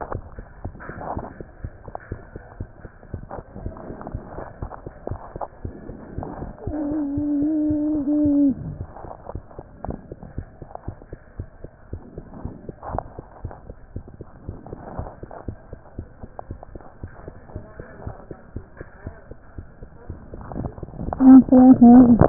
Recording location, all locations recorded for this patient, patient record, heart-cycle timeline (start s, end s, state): mitral valve (MV)
aortic valve (AV)+pulmonary valve (PV)+tricuspid valve (TV)+mitral valve (MV)
#Age: Child
#Sex: Male
#Height: nan
#Weight: nan
#Pregnancy status: False
#Murmur: Absent
#Murmur locations: nan
#Most audible location: nan
#Systolic murmur timing: nan
#Systolic murmur shape: nan
#Systolic murmur grading: nan
#Systolic murmur pitch: nan
#Systolic murmur quality: nan
#Diastolic murmur timing: nan
#Diastolic murmur shape: nan
#Diastolic murmur grading: nan
#Diastolic murmur pitch: nan
#Diastolic murmur quality: nan
#Outcome: Abnormal
#Campaign: 2015 screening campaign
0.00	9.34	unannotated
9.34	9.44	S1
9.44	9.54	systole
9.54	9.64	S2
9.64	9.84	diastole
9.84	9.98	S1
9.98	10.08	systole
10.08	10.16	S2
10.16	10.34	diastole
10.34	10.48	S1
10.48	10.58	systole
10.58	10.66	S2
10.66	10.84	diastole
10.84	10.98	S1
10.98	11.08	systole
11.08	11.18	S2
11.18	11.38	diastole
11.38	11.48	S1
11.48	11.60	systole
11.60	11.70	S2
11.70	11.92	diastole
11.92	12.04	S1
12.04	12.16	systole
12.16	12.26	S2
12.26	12.44	diastole
12.44	12.54	S1
12.54	12.66	systole
12.66	12.74	S2
12.74	12.90	diastole
12.90	13.04	S1
13.04	13.14	systole
13.14	13.24	S2
13.24	13.40	diastole
13.40	13.54	S1
13.54	13.66	systole
13.66	13.76	S2
13.76	13.96	diastole
13.96	14.06	S1
14.06	14.16	systole
14.16	14.26	S2
14.26	14.46	diastole
14.46	14.58	S1
14.58	14.70	systole
14.70	14.78	S2
14.78	14.98	diastole
14.98	15.12	S1
15.12	15.22	systole
15.22	15.30	S2
15.30	15.48	diastole
15.48	15.58	S1
15.58	15.68	systole
15.68	15.78	S2
15.78	15.98	diastole
15.98	16.08	S1
16.08	16.20	systole
16.20	16.30	S2
16.30	16.50	diastole
16.50	16.62	S1
16.62	16.72	systole
16.72	16.82	S2
16.82	17.04	diastole
17.04	17.14	S1
17.14	17.24	systole
17.24	17.34	S2
17.34	17.52	diastole
17.52	17.66	S1
17.66	17.76	systole
17.76	17.86	S2
17.86	18.06	diastole
18.06	18.18	S1
18.18	18.29	systole
18.29	18.34	S2
18.34	18.52	diastole
18.52	18.66	S1
18.66	18.78	systole
18.78	18.88	S2
18.88	19.06	diastole
19.06	19.18	S1
19.18	19.28	systole
19.28	19.38	S2
19.38	19.58	diastole
19.58	19.68	S1
19.68	19.80	systole
19.80	19.90	S2
19.90	20.06	diastole
20.06	20.18	S1
20.18	20.30	systole
20.30	20.37	S2
20.37	20.52	diastole
20.52	22.29	unannotated